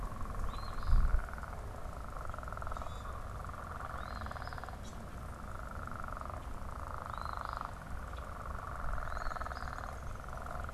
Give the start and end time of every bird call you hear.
[0.35, 1.25] Eastern Phoebe (Sayornis phoebe)
[3.75, 4.75] Eastern Phoebe (Sayornis phoebe)
[6.65, 7.75] Eastern Phoebe (Sayornis phoebe)
[8.85, 9.75] Eastern Phoebe (Sayornis phoebe)
[8.95, 10.65] Downy Woodpecker (Dryobates pubescens)

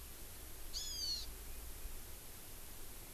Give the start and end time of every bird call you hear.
[0.73, 1.23] Hawaiian Hawk (Buteo solitarius)

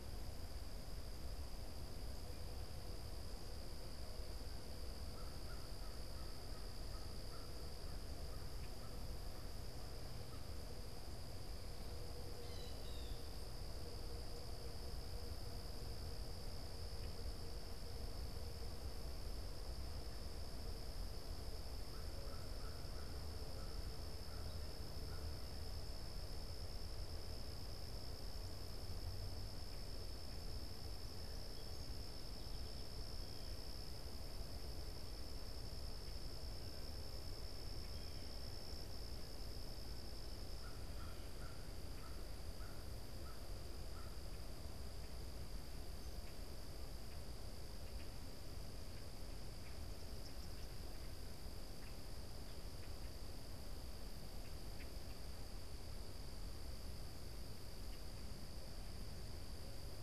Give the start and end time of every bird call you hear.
[4.86, 10.46] American Crow (Corvus brachyrhynchos)
[12.16, 13.16] Blue Jay (Cyanocitta cristata)
[21.76, 25.76] American Crow (Corvus brachyrhynchos)
[40.36, 44.26] American Crow (Corvus brachyrhynchos)
[45.16, 53.26] Common Grackle (Quiscalus quiscula)
[49.46, 50.96] Eastern Kingbird (Tyrannus tyrannus)

